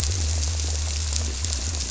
{"label": "biophony", "recorder": "SoundTrap 300"}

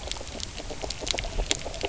{"label": "biophony, grazing", "recorder": "SoundTrap 300"}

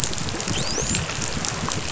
{"label": "biophony, dolphin", "recorder": "SoundTrap 500"}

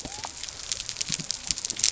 {"label": "biophony", "recorder": "SoundTrap 300"}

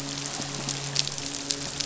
{"label": "biophony, midshipman", "recorder": "SoundTrap 500"}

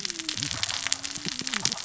{"label": "biophony, cascading saw", "recorder": "SoundTrap 600 or HydroMoth"}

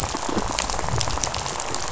{"label": "biophony, rattle", "recorder": "SoundTrap 500"}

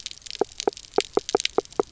{"label": "biophony, knock croak", "recorder": "SoundTrap 300"}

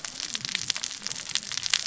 {"label": "biophony, cascading saw", "recorder": "SoundTrap 600 or HydroMoth"}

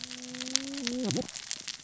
{"label": "biophony, cascading saw", "recorder": "SoundTrap 600 or HydroMoth"}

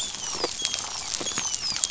{"label": "biophony, dolphin", "recorder": "SoundTrap 500"}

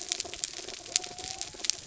{"label": "anthrophony, mechanical", "recorder": "SoundTrap 300"}
{"label": "biophony", "recorder": "SoundTrap 300"}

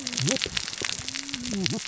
{"label": "biophony, cascading saw", "recorder": "SoundTrap 600 or HydroMoth"}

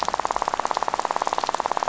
{"label": "biophony, rattle", "recorder": "SoundTrap 500"}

